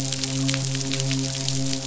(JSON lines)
{"label": "biophony, midshipman", "recorder": "SoundTrap 500"}